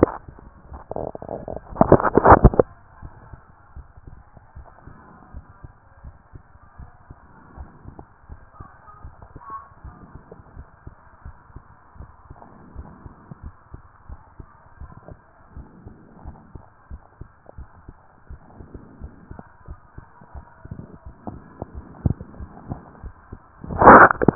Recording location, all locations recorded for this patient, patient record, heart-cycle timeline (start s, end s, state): tricuspid valve (TV)
pulmonary valve (PV)+tricuspid valve (TV)+mitral valve (MV)
#Age: Child
#Sex: Female
#Height: 135.0 cm
#Weight: 38.4 kg
#Pregnancy status: False
#Murmur: Absent
#Murmur locations: nan
#Most audible location: nan
#Systolic murmur timing: nan
#Systolic murmur shape: nan
#Systolic murmur grading: nan
#Systolic murmur pitch: nan
#Systolic murmur quality: nan
#Diastolic murmur timing: nan
#Diastolic murmur shape: nan
#Diastolic murmur grading: nan
#Diastolic murmur pitch: nan
#Diastolic murmur quality: nan
#Outcome: Abnormal
#Campaign: 2014 screening campaign
0.00	2.80	unannotated
2.80	3.02	diastole
3.02	3.12	S1
3.12	3.30	systole
3.30	3.40	S2
3.40	3.76	diastole
3.76	3.86	S1
3.86	4.06	systole
4.06	4.16	S2
4.16	4.56	diastole
4.56	4.66	S1
4.66	4.86	systole
4.86	4.96	S2
4.96	5.34	diastole
5.34	5.44	S1
5.44	5.62	systole
5.62	5.72	S2
5.72	6.04	diastole
6.04	6.14	S1
6.14	6.34	systole
6.34	6.42	S2
6.42	6.78	diastole
6.78	6.90	S1
6.90	7.08	systole
7.08	7.18	S2
7.18	7.56	diastole
7.56	7.68	S1
7.68	7.87	systole
7.87	7.96	S2
7.96	8.30	diastole
8.30	8.40	S1
8.40	8.59	systole
8.59	8.68	S2
8.68	9.02	diastole
9.02	24.35	unannotated